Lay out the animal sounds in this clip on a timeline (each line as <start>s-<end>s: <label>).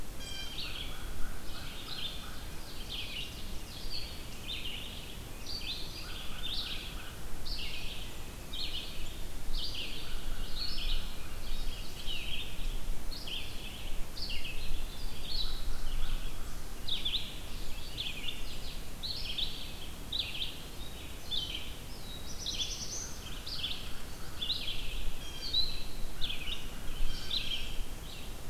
0.0s-28.4s: Red-eyed Vireo (Vireo olivaceus)
0.1s-0.9s: Blue Jay (Cyanocitta cristata)
0.4s-2.8s: American Crow (Corvus brachyrhynchos)
5.8s-7.8s: American Crow (Corvus brachyrhynchos)
9.8s-12.1s: American Crow (Corvus brachyrhynchos)
15.4s-17.2s: American Crow (Corvus brachyrhynchos)
21.6s-23.6s: Black-throated Blue Warbler (Setophaga caerulescens)
22.7s-27.7s: American Crow (Corvus brachyrhynchos)
25.1s-25.6s: Blue Jay (Cyanocitta cristata)
26.9s-28.0s: Blue Jay (Cyanocitta cristata)